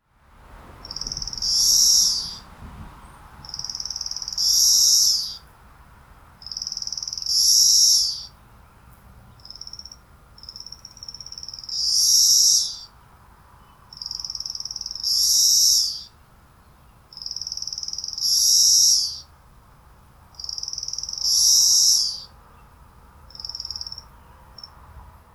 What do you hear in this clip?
Magicicada cassini, a cicada